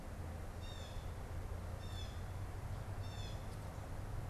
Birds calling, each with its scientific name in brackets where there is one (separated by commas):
Blue Jay (Cyanocitta cristata)